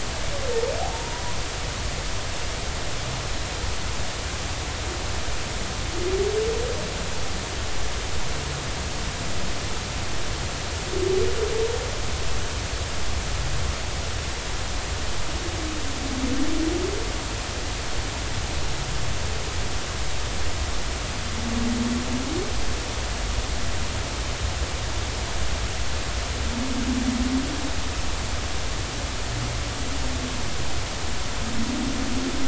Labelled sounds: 0.8	1.2	humpback whale, 0.80 to 0.99 kHz

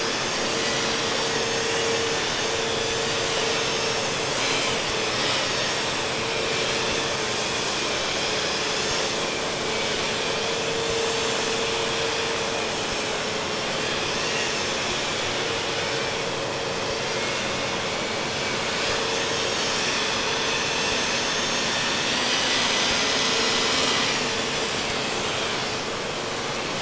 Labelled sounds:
0.0	9.5	vessel noise, 0.97 to 7.2 kHz
10.3	16.5	vessel noise, 1.3 to 7.3 kHz
17.1	24.7	vessel noise, 0.50 to 7.0 kHz

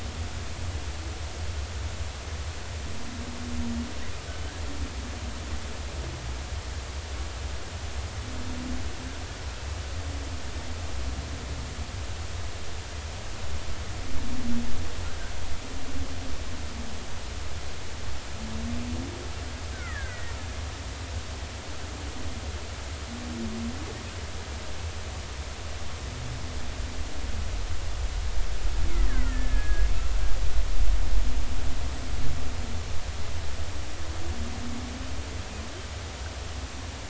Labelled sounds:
19.7	20.3	killer whale, Bigg's (transient), 1.2 to 2.3 kHz
29.1	29.9	killer whale, Bigg's (transient), 1.3 to 2.2 kHz

